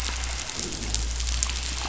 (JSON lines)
{"label": "biophony", "recorder": "SoundTrap 500"}